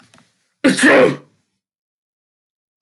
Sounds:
Sneeze